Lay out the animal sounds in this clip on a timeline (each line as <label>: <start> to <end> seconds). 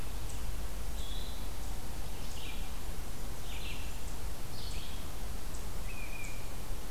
Red-eyed Vireo (Vireo olivaceus): 0.0 to 6.9 seconds
unidentified call: 5.8 to 6.5 seconds